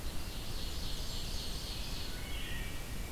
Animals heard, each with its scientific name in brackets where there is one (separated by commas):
Ovenbird (Seiurus aurocapilla), Blackburnian Warbler (Setophaga fusca), Wood Thrush (Hylocichla mustelina), Scarlet Tanager (Piranga olivacea)